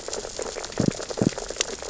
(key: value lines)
label: biophony, sea urchins (Echinidae)
recorder: SoundTrap 600 or HydroMoth